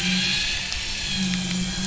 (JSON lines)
{"label": "anthrophony, boat engine", "recorder": "SoundTrap 500"}